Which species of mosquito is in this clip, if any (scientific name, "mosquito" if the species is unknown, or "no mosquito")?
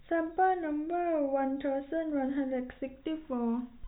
no mosquito